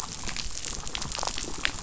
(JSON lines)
{"label": "biophony, damselfish", "recorder": "SoundTrap 500"}